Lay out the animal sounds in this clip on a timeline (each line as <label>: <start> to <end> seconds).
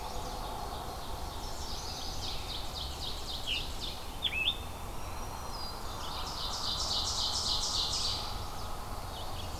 Ovenbird (Seiurus aurocapilla): 0.1 to 1.5 seconds
Chestnut-sided Warbler (Setophaga pensylvanica): 1.1 to 2.4 seconds
Scarlet Tanager (Piranga olivacea): 1.6 to 2.6 seconds
Ovenbird (Seiurus aurocapilla): 1.8 to 4.1 seconds
Scarlet Tanager (Piranga olivacea): 3.2 to 4.6 seconds
Black-throated Green Warbler (Setophaga virens): 4.8 to 6.1 seconds
Ovenbird (Seiurus aurocapilla): 5.7 to 8.4 seconds
Red-eyed Vireo (Vireo olivaceus): 5.9 to 9.6 seconds
Chestnut-sided Warbler (Setophaga pensylvanica): 7.9 to 8.7 seconds
Pine Warbler (Setophaga pinus): 8.8 to 9.6 seconds